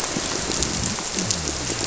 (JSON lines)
{"label": "biophony", "recorder": "SoundTrap 300"}